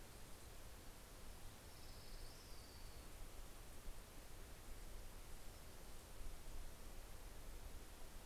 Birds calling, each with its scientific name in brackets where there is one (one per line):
Orange-crowned Warbler (Leiothlypis celata)
Pacific-slope Flycatcher (Empidonax difficilis)